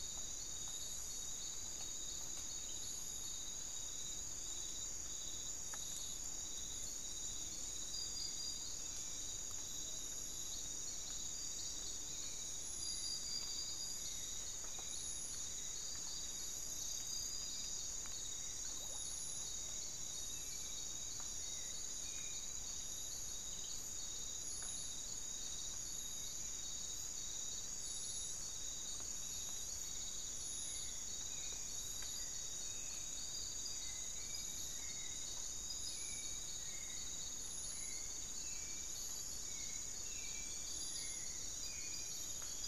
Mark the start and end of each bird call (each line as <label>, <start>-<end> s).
Hauxwell's Thrush (Turdus hauxwelli), 6.6-42.6 s
unidentified bird, 18.5-19.2 s